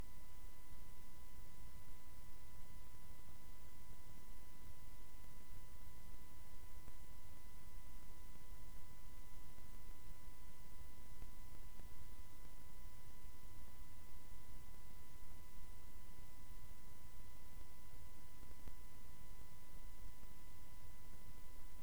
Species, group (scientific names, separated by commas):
Chorthippus binotatus, Orthoptera